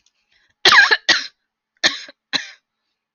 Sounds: Cough